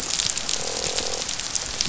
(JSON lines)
{"label": "biophony, croak", "recorder": "SoundTrap 500"}